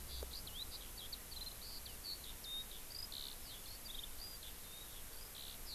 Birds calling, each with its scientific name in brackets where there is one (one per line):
Eurasian Skylark (Alauda arvensis)